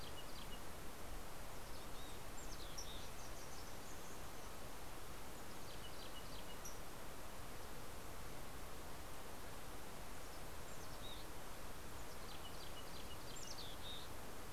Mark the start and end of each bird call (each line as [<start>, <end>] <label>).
[0.00, 3.33] Mountain Chickadee (Poecile gambeli)
[5.03, 6.93] Mountain Chickadee (Poecile gambeli)
[10.33, 14.53] Mountain Chickadee (Poecile gambeli)